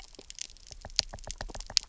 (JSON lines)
{"label": "biophony, knock", "recorder": "SoundTrap 300"}